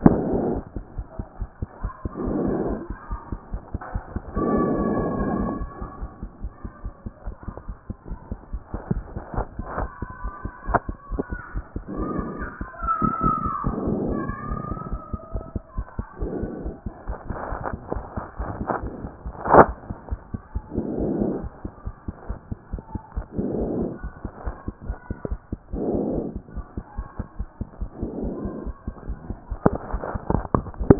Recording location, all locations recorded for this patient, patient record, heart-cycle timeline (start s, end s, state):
pulmonary valve (PV)
aortic valve (AV)+pulmonary valve (PV)+tricuspid valve (TV)+mitral valve (MV)
#Age: Child
#Sex: Male
#Height: 109.0 cm
#Weight: 22.9 kg
#Pregnancy status: False
#Murmur: Absent
#Murmur locations: nan
#Most audible location: nan
#Systolic murmur timing: nan
#Systolic murmur shape: nan
#Systolic murmur grading: nan
#Systolic murmur pitch: nan
#Systolic murmur quality: nan
#Diastolic murmur timing: nan
#Diastolic murmur shape: nan
#Diastolic murmur grading: nan
#Diastolic murmur pitch: nan
#Diastolic murmur quality: nan
#Outcome: Abnormal
#Campaign: 2014 screening campaign
0.00	5.53	unannotated
5.53	5.60	diastole
5.60	5.67	S1
5.67	5.77	systole
5.77	5.85	S2
5.85	5.99	diastole
5.99	6.07	S1
6.07	6.20	systole
6.20	6.28	S2
6.28	6.40	diastole
6.40	6.49	S1
6.49	6.62	systole
6.62	6.70	S2
6.70	6.84	diastole
6.84	6.92	S1
6.92	7.06	systole
7.06	7.12	S2
7.12	7.26	diastole
7.26	7.34	S1
7.34	7.48	systole
7.48	7.56	S2
7.56	7.69	diastole
7.69	7.76	S1
7.76	7.90	systole
7.90	7.96	S2
7.96	8.10	diastole
8.10	8.18	S1
8.18	8.30	systole
8.30	8.38	S2
8.38	8.52	diastole
8.52	8.62	S1
8.62	8.72	systole
8.72	8.80	S2
8.80	8.95	diastole
8.95	9.04	S1
9.04	9.14	systole
9.14	9.22	S2
9.22	9.36	diastole
9.36	9.46	S1
9.46	9.56	systole
9.56	9.64	S2
9.64	9.79	diastole
9.79	9.88	S1
9.88	10.00	systole
10.00	10.08	S2
10.08	10.24	diastole
10.24	10.32	S1
10.32	10.44	systole
10.44	10.52	S2
10.52	10.68	diastole
10.68	30.99	unannotated